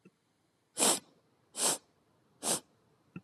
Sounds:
Sniff